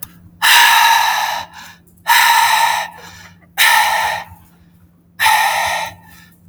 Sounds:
Sigh